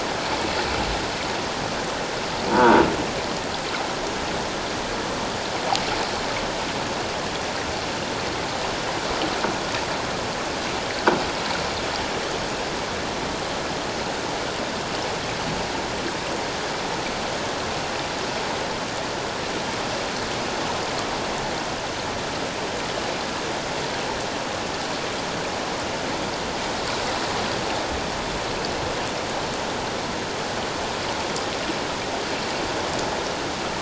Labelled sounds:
2.5	2.8	croaking sound likely from a nearby submerged object, 0.84 to 1.0 kHz

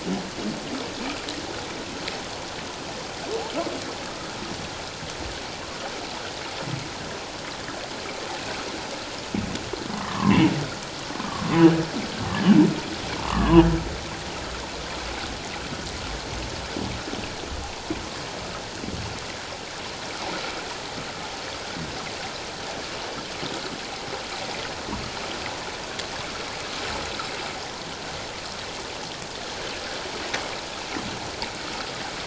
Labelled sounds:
9.9	10.4	humpback whale, 0.88 to 1.3 kHz
12.3	12.6	humpback whale, 1.5 to 1.8 kHz
13.2	13.7	humpback whale, 0.91 to 1.3 kHz

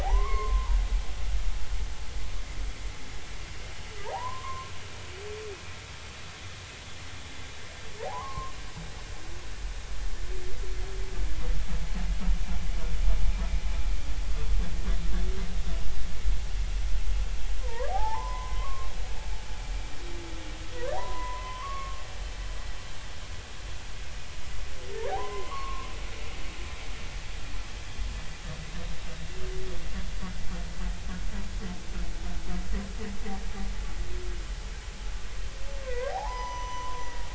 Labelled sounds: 0.0	0.8	humpback whale, 0.80 to 4.4 kHz
4.0	4.7	humpback whale, 0.80 to 1.2 kHz
8.0	8.5	humpback whale, 0.80 to 1.2 kHz
17.6	19.2	humpback whale, 0.80 to 5.4 kHz
21.1	21.7	humpback whale, 2.0 to 3.2 kHz
22.0	23.0	humpback whale, 0.90 to 1.2 kHz
25.1	25.9	humpback whale, 0.80 to 2.2 kHz
35.9	37.1	humpback whale, 0.80 to 6.0 kHz

